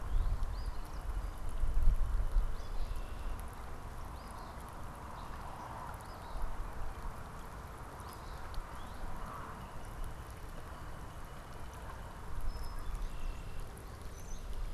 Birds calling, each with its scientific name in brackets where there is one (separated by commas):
Eastern Phoebe (Sayornis phoebe), Brown-headed Cowbird (Molothrus ater), Red-winged Blackbird (Agelaius phoeniceus), Northern Cardinal (Cardinalis cardinalis)